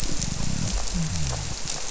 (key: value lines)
label: biophony
recorder: SoundTrap 300